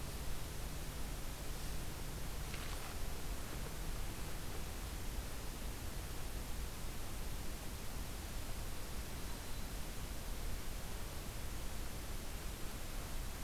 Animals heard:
forest ambience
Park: Acadia National Park